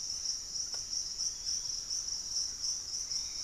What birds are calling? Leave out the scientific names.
Hauxwell's Thrush, Piratic Flycatcher, Thrush-like Wren